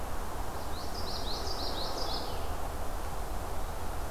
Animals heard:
Common Yellowthroat (Geothlypis trichas)

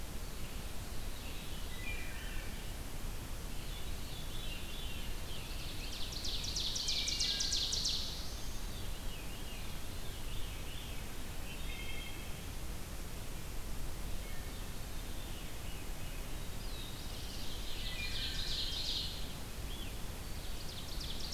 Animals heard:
Red-eyed Vireo (Vireo olivaceus)
Ovenbird (Seiurus aurocapilla)
Scarlet Tanager (Piranga olivacea)
Wood Thrush (Hylocichla mustelina)
Black-throated Blue Warbler (Setophaga caerulescens)
Veery (Catharus fuscescens)

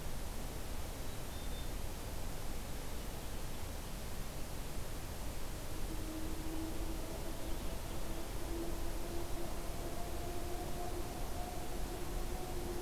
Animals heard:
Black-capped Chickadee (Poecile atricapillus)

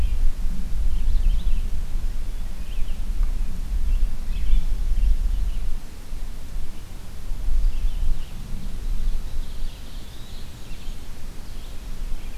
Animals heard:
Eastern Wood-Pewee (Contopus virens)
Red-eyed Vireo (Vireo olivaceus)
Black-and-white Warbler (Mniotilta varia)

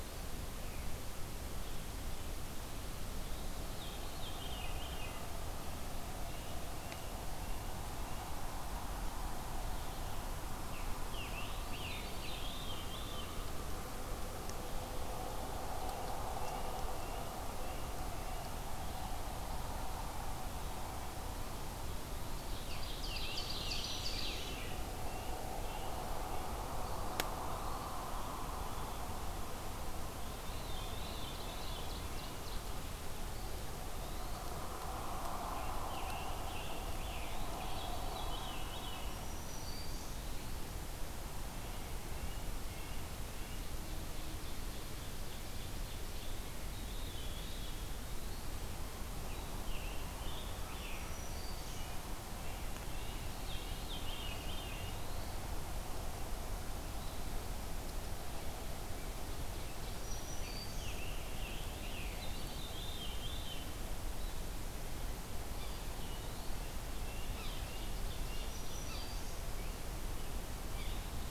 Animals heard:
Black-throated Green Warbler (Setophaga virens)
Veery (Catharus fuscescens)
Ovenbird (Seiurus aurocapilla)
Yellow-bellied Sapsucker (Sphyrapicus varius)
Red-breasted Nuthatch (Sitta canadensis)
Scarlet Tanager (Piranga olivacea)
Eastern Wood-Pewee (Contopus virens)

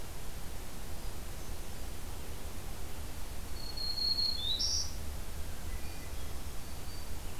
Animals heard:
Black-throated Green Warbler (Setophaga virens)
Hermit Thrush (Catharus guttatus)

